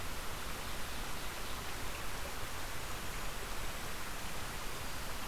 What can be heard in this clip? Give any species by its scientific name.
Regulus satrapa